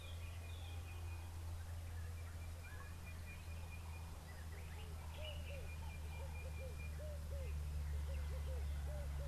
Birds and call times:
Sulphur-breasted Bushshrike (Telophorus sulfureopectus): 0:00.5
Red-eyed Dove (Streptopelia semitorquata): 0:07.1

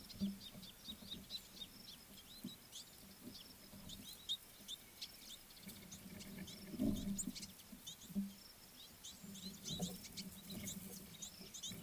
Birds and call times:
Scarlet-chested Sunbird (Chalcomitra senegalensis): 0:01.2
Red-billed Firefinch (Lagonosticta senegala): 0:10.2

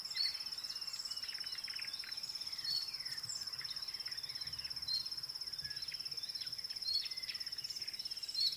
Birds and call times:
Dideric Cuckoo (Chrysococcyx caprius): 0:01.1
Yellow-breasted Apalis (Apalis flavida): 0:01.7

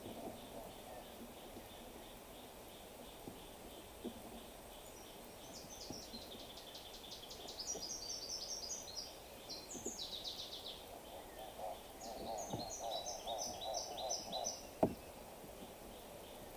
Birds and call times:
Gray Apalis (Apalis cinerea): 0:02.1
Brown Woodland-Warbler (Phylloscopus umbrovirens): 0:08.4
Hartlaub's Turaco (Tauraco hartlaubi): 0:12.9

